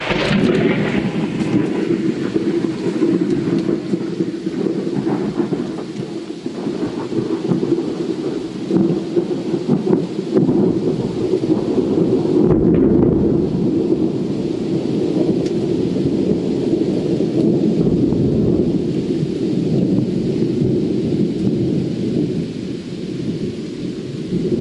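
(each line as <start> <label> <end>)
0.0 Raindrops hitting the ground, wind blowing, and thunder striking. 24.6
0.0 Thunder strikes the ground in the distance. 0.9
12.3 Thunder strikes the ground in the distance. 13.5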